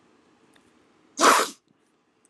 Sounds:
Sniff